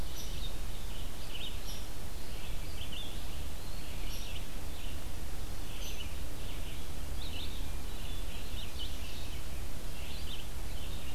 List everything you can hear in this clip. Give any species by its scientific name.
Vireo olivaceus, Dryobates villosus